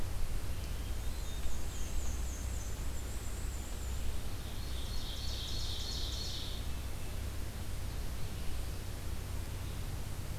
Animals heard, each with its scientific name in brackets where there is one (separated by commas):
Hermit Thrush (Catharus guttatus), Black-and-white Warbler (Mniotilta varia), Ovenbird (Seiurus aurocapilla)